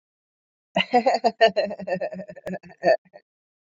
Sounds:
Laughter